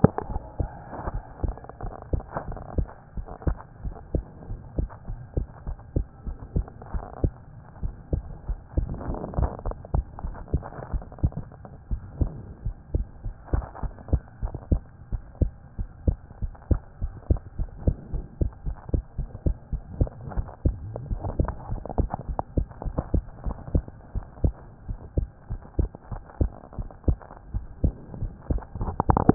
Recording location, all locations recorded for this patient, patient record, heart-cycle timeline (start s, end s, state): pulmonary valve (PV)
aortic valve (AV)+pulmonary valve (PV)+tricuspid valve (TV)+mitral valve (MV)
#Age: Child
#Sex: Female
#Height: 114.0 cm
#Weight: 16.5 kg
#Pregnancy status: False
#Murmur: Absent
#Murmur locations: nan
#Most audible location: nan
#Systolic murmur timing: nan
#Systolic murmur shape: nan
#Systolic murmur grading: nan
#Systolic murmur pitch: nan
#Systolic murmur quality: nan
#Diastolic murmur timing: nan
#Diastolic murmur shape: nan
#Diastolic murmur grading: nan
#Diastolic murmur pitch: nan
#Diastolic murmur quality: nan
#Outcome: Abnormal
#Campaign: 2014 screening campaign
0.14	0.30	diastole
0.30	0.42	S1
0.42	0.64	systole
0.64	0.78	S2
0.78	1.04	diastole
1.04	1.22	S1
1.22	1.40	systole
1.40	1.56	S2
1.56	1.82	diastole
1.82	1.94	S1
1.94	2.10	systole
2.10	2.24	S2
2.24	2.46	diastole
2.46	2.60	S1
2.60	2.74	systole
2.74	2.90	S2
2.90	3.16	diastole
3.16	3.26	S1
3.26	3.44	systole
3.44	3.58	S2
3.58	3.82	diastole
3.82	3.94	S1
3.94	4.10	systole
4.10	4.26	S2
4.26	4.48	diastole
4.48	4.60	S1
4.60	4.76	systole
4.76	4.90	S2
4.90	5.08	diastole
5.08	5.20	S1
5.20	5.34	systole
5.34	5.48	S2
5.48	5.66	diastole
5.66	5.78	S1
5.78	5.92	systole
5.92	6.06	S2
6.06	6.26	diastole
6.26	6.38	S1
6.38	6.52	systole
6.52	6.66	S2
6.66	6.92	diastole
6.92	7.06	S1
7.06	7.22	systole
7.22	7.34	S2
7.34	7.54	diastole
7.54	7.62	S1
7.62	7.82	systole
7.82	7.92	S2
7.92	8.12	diastole
8.12	8.28	S1
8.28	8.48	systole
8.48	8.58	S2
8.58	8.76	diastole
8.76	8.90	S1
8.90	9.06	systole
9.06	9.20	S2
9.20	9.36	diastole
9.36	9.50	S1
9.50	9.64	systole
9.64	9.76	S2
9.76	9.92	diastole
9.92	10.06	S1
10.06	10.22	systole
10.22	10.36	S2
10.36	10.52	diastole
10.52	10.66	S1
10.66	10.88	systole
10.88	11.02	S2
11.02	11.20	diastole
11.20	11.34	S1
11.34	11.56	systole
11.56	11.66	S2
11.66	11.90	diastole
11.90	12.04	S1
12.04	12.20	systole
12.20	12.36	S2
12.36	12.62	diastole
12.62	12.74	S1
12.74	12.92	systole
12.92	13.08	S2
13.08	13.24	diastole
13.24	13.34	S1
13.34	13.52	systole
13.52	13.66	S2
13.66	13.84	diastole
13.84	13.92	S1
13.92	14.08	systole
14.08	14.22	S2
14.22	14.42	diastole
14.42	14.52	S1
14.52	14.72	systole
14.72	14.86	S2
14.86	15.12	diastole
15.12	15.22	S1
15.22	15.42	systole
15.42	15.56	S2
15.56	15.78	diastole
15.78	15.88	S1
15.88	16.04	systole
16.04	16.20	S2
16.20	16.42	diastole
16.42	16.54	S1
16.54	16.72	systole
16.72	16.84	S2
16.84	17.02	diastole
17.02	17.14	S1
17.14	17.26	systole
17.26	17.42	S2
17.42	17.58	diastole
17.58	17.70	S1
17.70	17.82	systole
17.82	17.94	S2
17.94	18.12	diastole
18.12	18.24	S1
18.24	18.38	systole
18.38	18.48	S2
18.48	18.66	diastole
18.66	18.76	S1
18.76	18.90	systole
18.90	19.02	S2
19.02	19.18	diastole
19.18	19.30	S1
19.30	19.42	systole
19.42	19.56	S2
19.56	19.72	diastole
19.72	19.82	S1
19.82	19.96	systole
19.96	20.10	S2
20.10	20.32	diastole
20.32	20.46	S1
20.46	20.66	systole
20.66	20.82	S2
20.82	21.02	diastole
21.02	21.20	S1
21.20	21.38	systole
21.38	21.52	S2
21.52	21.68	diastole
21.68	21.82	S1
21.82	21.96	systole
21.96	22.10	S2
22.10	22.28	diastole
22.28	22.38	S1
22.38	22.56	systole
22.56	22.68	S2
22.68	22.86	diastole
22.86	22.96	S1
22.96	23.12	systole
23.12	23.26	S2
23.26	23.46	diastole
23.46	23.60	S1
23.60	23.76	systole
23.76	23.92	S2
23.92	24.16	diastole
24.16	24.26	S1
24.26	24.44	systole
24.44	24.60	S2
24.60	24.86	diastole
24.86	24.98	S1
24.98	25.16	systole
25.16	25.30	S2
25.30	25.50	diastole
25.50	25.60	S1
25.60	25.76	systole
25.76	25.90	S2
25.90	26.12	diastole
26.12	26.22	S1
26.22	26.42	systole
26.42	26.56	S2
26.56	26.78	diastole
26.78	26.90	S1
26.90	27.08	systole
27.08	27.24	S2
27.24	27.50	diastole
27.50	27.66	S1
27.66	27.82	systole
27.82	27.98	S2
27.98	28.18	diastole
28.18	28.32	S1
28.32	28.48	systole
28.48	28.64	S2
28.64	28.80	diastole
28.80	28.98	S1
28.98	29.26	systole
29.26	29.34	S2